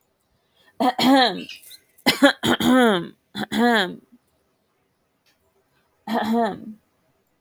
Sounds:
Throat clearing